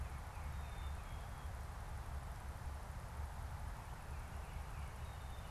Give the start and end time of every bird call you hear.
[0.00, 1.30] Tufted Titmouse (Baeolophus bicolor)
[0.50, 1.60] Black-capped Chickadee (Poecile atricapillus)
[3.80, 5.20] Tufted Titmouse (Baeolophus bicolor)
[4.80, 5.50] Black-capped Chickadee (Poecile atricapillus)
[5.00, 5.50] Northern Flicker (Colaptes auratus)

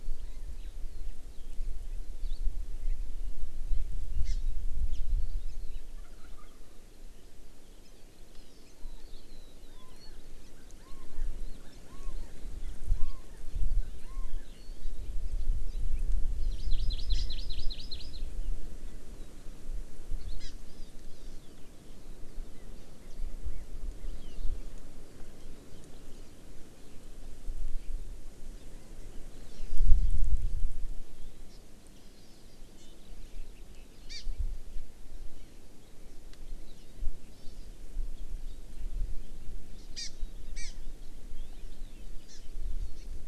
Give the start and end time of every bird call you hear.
[4.21, 4.41] Hawaii Amakihi (Chlorodrepanis virens)
[5.91, 6.61] Wild Turkey (Meleagris gallopavo)
[8.31, 8.71] Hawaii Amakihi (Chlorodrepanis virens)
[14.51, 14.91] Hawaii Amakihi (Chlorodrepanis virens)
[16.51, 18.21] Hawaii Amakihi (Chlorodrepanis virens)
[20.41, 21.41] Hawaii Amakihi (Chlorodrepanis virens)
[31.51, 31.61] Hawaii Amakihi (Chlorodrepanis virens)
[32.81, 32.91] Hawaii Amakihi (Chlorodrepanis virens)
[34.11, 34.21] Hawaii Amakihi (Chlorodrepanis virens)
[37.31, 37.71] Hawaii Amakihi (Chlorodrepanis virens)
[39.91, 40.11] Hawaii Amakihi (Chlorodrepanis virens)
[40.51, 40.71] Hawaii Amakihi (Chlorodrepanis virens)
[42.21, 42.41] Hawaii Amakihi (Chlorodrepanis virens)
[42.91, 43.01] Hawaii Amakihi (Chlorodrepanis virens)

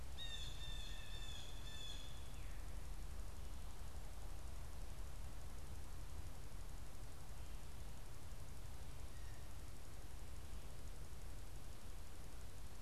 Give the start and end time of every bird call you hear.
[0.00, 2.20] Blue Jay (Cyanocitta cristata)

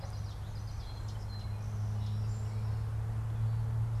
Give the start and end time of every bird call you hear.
[0.00, 0.92] Common Yellowthroat (Geothlypis trichas)
[0.71, 2.81] Song Sparrow (Melospiza melodia)

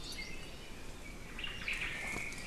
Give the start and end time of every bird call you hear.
[1.10, 2.40] Omao (Myadestes obscurus)

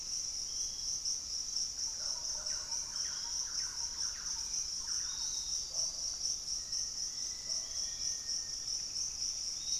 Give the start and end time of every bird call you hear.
[0.00, 0.52] Pygmy Antwren (Myrmotherula brachyura)
[0.00, 9.79] Piratic Flycatcher (Legatus leucophaius)
[1.72, 5.62] Thrush-like Wren (Campylorhynchus turdinus)
[2.42, 9.79] Spot-winged Antshrike (Pygiptila stellaris)
[6.32, 8.82] Black-faced Antthrush (Formicarius analis)
[8.52, 9.79] Pygmy Antwren (Myrmotherula brachyura)

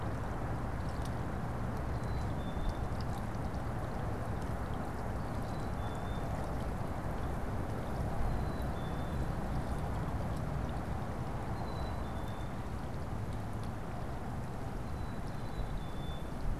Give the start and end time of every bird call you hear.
[1.78, 2.98] Black-capped Chickadee (Poecile atricapillus)
[5.18, 6.28] Black-capped Chickadee (Poecile atricapillus)
[8.08, 9.38] Black-capped Chickadee (Poecile atricapillus)
[11.38, 12.58] Black-capped Chickadee (Poecile atricapillus)
[14.58, 16.48] Black-capped Chickadee (Poecile atricapillus)

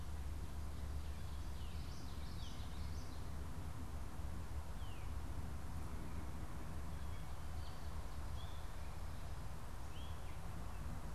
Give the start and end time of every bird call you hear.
[1.10, 3.40] Common Yellowthroat (Geothlypis trichas)
[4.70, 5.20] Veery (Catharus fuscescens)
[6.80, 11.10] Gray Catbird (Dumetella carolinensis)

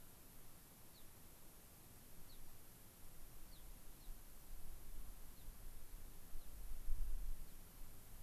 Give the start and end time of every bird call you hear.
[0.00, 6.61] American Pipit (Anthus rubescens)

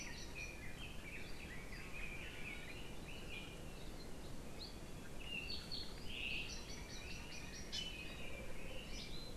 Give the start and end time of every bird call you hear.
[0.00, 3.80] Red-billed Leiothrix (Leiothrix lutea)
[7.70, 7.90] Hawaii Amakihi (Chlorodrepanis virens)

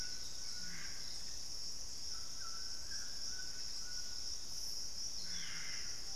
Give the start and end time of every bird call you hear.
[0.00, 6.16] White-throated Toucan (Ramphastos tucanus)
[5.24, 6.13] Ringed Antpipit (Corythopis torquatus)

